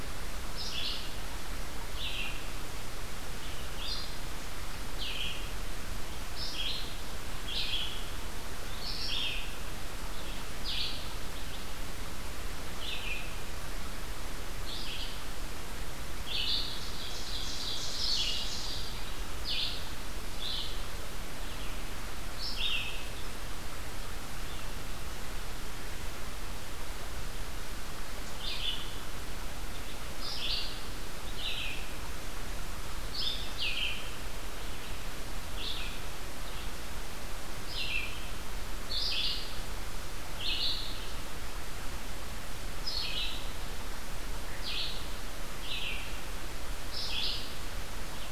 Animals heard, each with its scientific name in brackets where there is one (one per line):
Ovenbird (Seiurus aurocapilla)
Red-eyed Vireo (Vireo olivaceus)